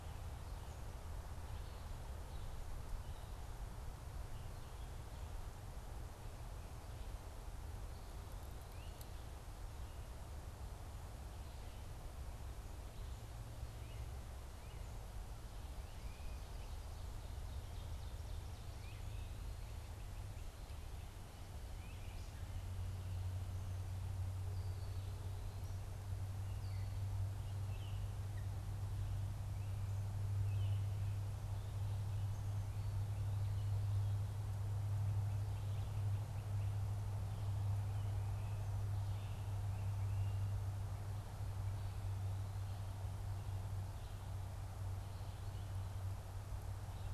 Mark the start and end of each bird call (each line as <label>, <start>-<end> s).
Great Crested Flycatcher (Myiarchus crinitus), 8.5-9.0 s
Great Crested Flycatcher (Myiarchus crinitus), 13.5-16.6 s
Great Crested Flycatcher (Myiarchus crinitus), 18.5-22.4 s
Great Crested Flycatcher (Myiarchus crinitus), 38.1-40.6 s